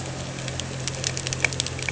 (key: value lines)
label: anthrophony, boat engine
recorder: HydroMoth